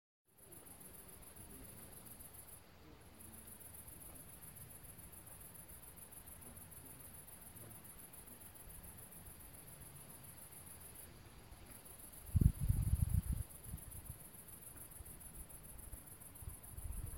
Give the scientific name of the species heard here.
Tettigonia viridissima